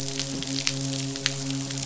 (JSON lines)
{"label": "biophony, midshipman", "recorder": "SoundTrap 500"}